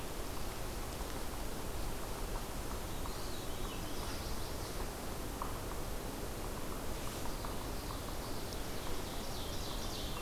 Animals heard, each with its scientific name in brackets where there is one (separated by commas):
Chestnut-sided Warbler (Setophaga pensylvanica), Ovenbird (Seiurus aurocapilla), Common Yellowthroat (Geothlypis trichas), Veery (Catharus fuscescens)